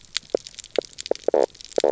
{"label": "biophony, knock croak", "recorder": "SoundTrap 300"}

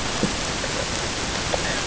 {"label": "ambient", "recorder": "HydroMoth"}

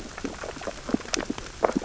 {"label": "biophony, sea urchins (Echinidae)", "recorder": "SoundTrap 600 or HydroMoth"}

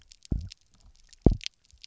{"label": "biophony, double pulse", "recorder": "SoundTrap 300"}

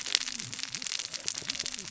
{"label": "biophony, cascading saw", "recorder": "SoundTrap 600 or HydroMoth"}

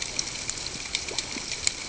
{"label": "ambient", "recorder": "HydroMoth"}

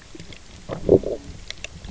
{"label": "biophony, low growl", "recorder": "SoundTrap 300"}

